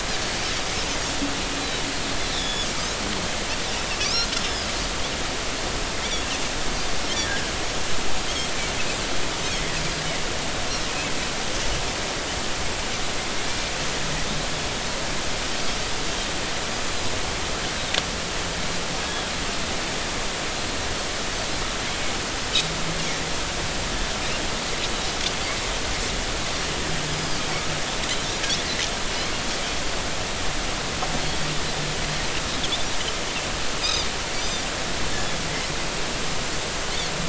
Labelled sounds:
2.3	2.7	Pacific white-sided dolphin, 3.3 to 5.4 kHz
4.0	4.7	Pacific white-sided dolphin, 3.3 to 5.7 kHz
7.3	7.5	Pacific white-sided dolphin, 1.5 to 1.7 kHz
27.0	27.4	Pacific white-sided dolphin, 4.6 to 5.2 kHz
33.8	34.1	Pacific white-sided dolphin, 3.5 to 5.2 kHz

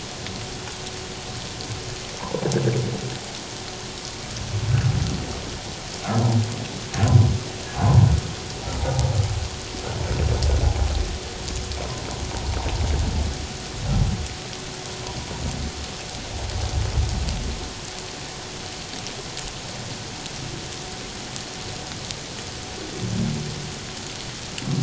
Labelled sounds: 6.0	6.3	humpback whale, 1.2 to 1.5 kHz

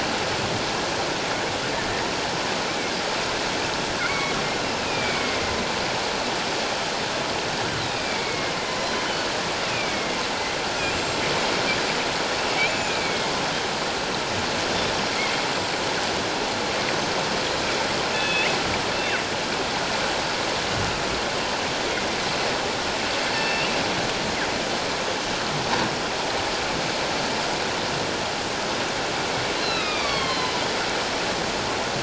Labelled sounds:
4.0	4.4	killer whale, northern resident, 2.0 to 2.3 kHz
4.8	5.4	killer whale, northern resident, 2.1 to 2.6 kHz
8.0	8.5	killer whale, northern resident, 2.1 to 2.4 kHz
9.6	10.2	killer whale, northern resident, 2.1 to 2.8 kHz
10.9	11.2	killer whale, northern resident, 7.3 to 7.6 kHz
12.5	13.3	killer whale, northern resident, 2.1 to 2.7 kHz
18.1	18.5	killer whale, northern resident, 1.6 to 3.6 kHz
18.9	19.2	killer whale, northern resident, 2.6 to 2.7 kHz
23.3	23.7	killer whale, northern resident, 1.7 to 4.6 kHz
29.6	30.6	killer whale, northern resident, 1.0 to 4.8 kHz

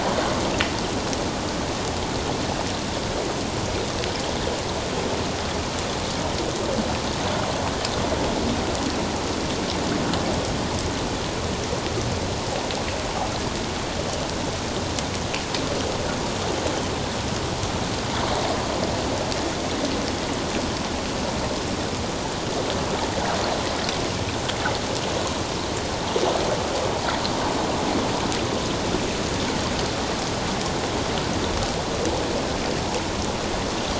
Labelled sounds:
0.1	0.3	water noise, 0.94 to 1.2 kHz

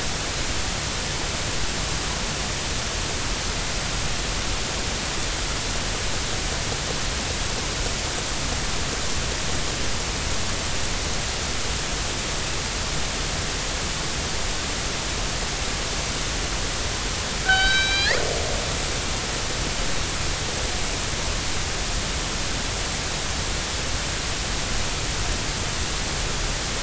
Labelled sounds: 17.4	18.2	killer whale, northern resident, G clan, 1.4 to 5.5 kHz

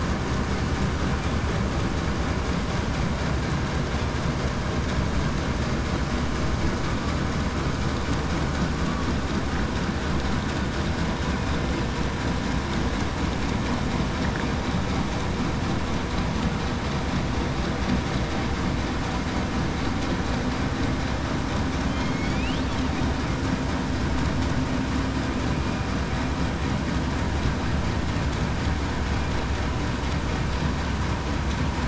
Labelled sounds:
21.9	22.4	killer whale, southern resident, 4.2 to 4.6 kHz

